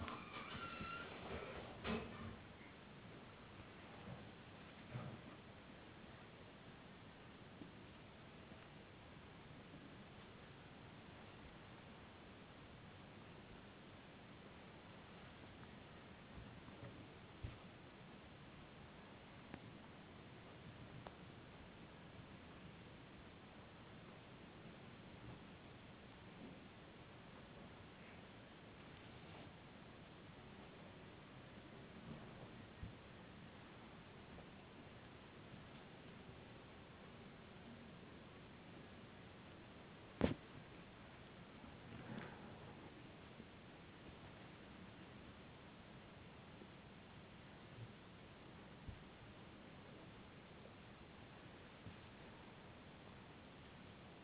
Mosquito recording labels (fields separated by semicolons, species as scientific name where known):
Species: no mosquito; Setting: insect culture